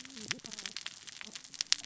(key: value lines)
label: biophony, cascading saw
recorder: SoundTrap 600 or HydroMoth